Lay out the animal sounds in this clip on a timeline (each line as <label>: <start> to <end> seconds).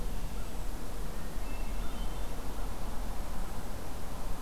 Hermit Thrush (Catharus guttatus): 1.4 to 2.4 seconds